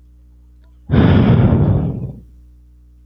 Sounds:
Sigh